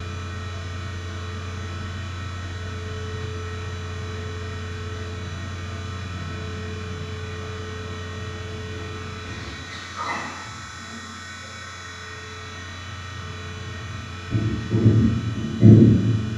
Is the buzzing sound unnatural?
yes